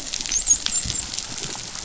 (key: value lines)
label: biophony, dolphin
recorder: SoundTrap 500